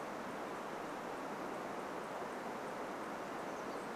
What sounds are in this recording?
Townsend's Warbler call, Pacific Wren song